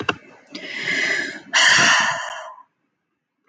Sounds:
Sigh